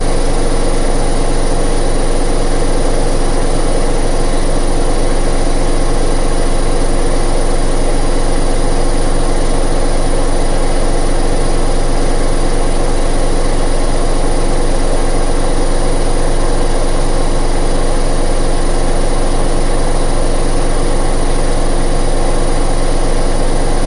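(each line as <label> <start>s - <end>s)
A machine produces a continuous spinning monotonous noise. 0.0s - 23.9s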